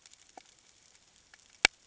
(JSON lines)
{"label": "ambient", "recorder": "HydroMoth"}